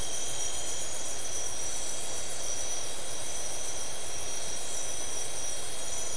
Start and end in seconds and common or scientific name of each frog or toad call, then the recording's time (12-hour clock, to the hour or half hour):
none
1am